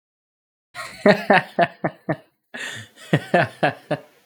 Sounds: Laughter